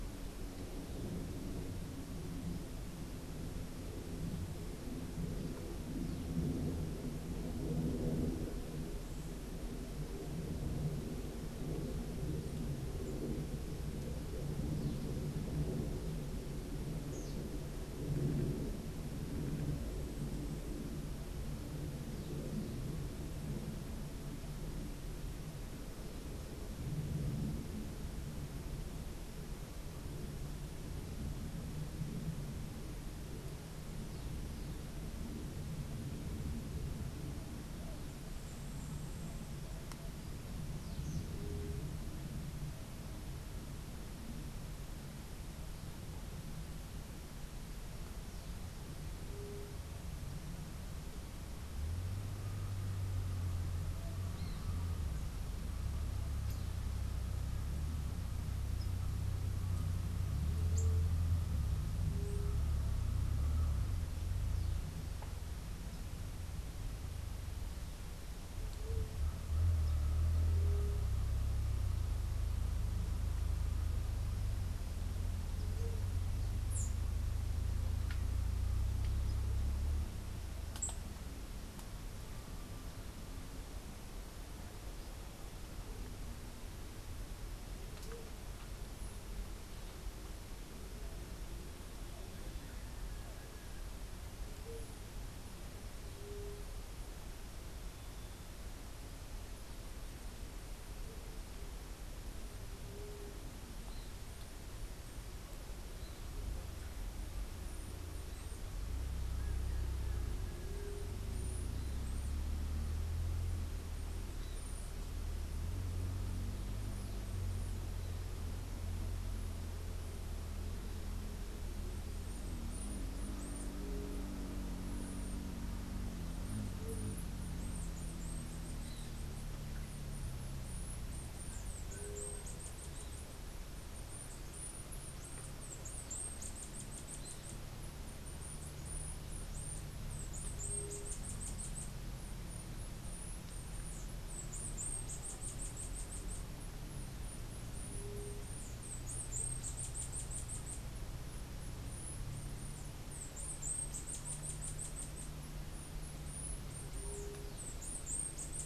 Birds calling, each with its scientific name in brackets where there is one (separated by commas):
White-tipped Dove (Leptotila verreauxi), Bananaquit (Coereba flaveola)